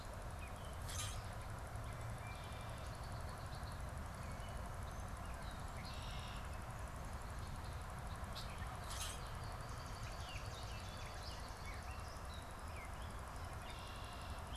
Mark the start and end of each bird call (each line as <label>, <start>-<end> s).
Common Grackle (Quiscalus quiscula), 0.8-1.3 s
Red-winged Blackbird (Agelaius phoeniceus), 1.8-4.0 s
Red-winged Blackbird (Agelaius phoeniceus), 5.5-6.6 s
Common Grackle (Quiscalus quiscula), 8.7-9.3 s
Swamp Sparrow (Melospiza georgiana), 9.1-12.3 s
Gray Catbird (Dumetella carolinensis), 9.9-12.4 s
Red-winged Blackbird (Agelaius phoeniceus), 13.2-14.5 s